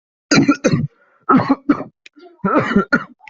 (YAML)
expert_labels:
- quality: ok
  cough_type: dry
  dyspnea: true
  wheezing: false
  stridor: false
  choking: false
  congestion: false
  nothing: false
  diagnosis: COVID-19
  severity: mild
age: 18
gender: female
respiratory_condition: false
fever_muscle_pain: false
status: COVID-19